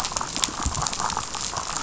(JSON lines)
{"label": "biophony, damselfish", "recorder": "SoundTrap 500"}